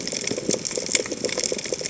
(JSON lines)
{"label": "biophony, chatter", "recorder": "HydroMoth"}